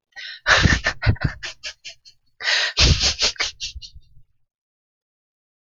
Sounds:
Laughter